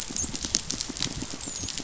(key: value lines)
label: biophony
recorder: SoundTrap 500

label: biophony, dolphin
recorder: SoundTrap 500